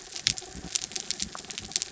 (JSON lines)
{"label": "anthrophony, mechanical", "recorder": "SoundTrap 300"}